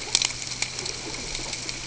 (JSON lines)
{"label": "ambient", "recorder": "HydroMoth"}